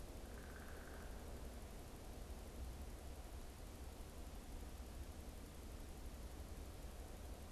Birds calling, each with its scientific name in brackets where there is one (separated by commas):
Downy Woodpecker (Dryobates pubescens)